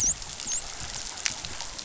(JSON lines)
{"label": "biophony, dolphin", "recorder": "SoundTrap 500"}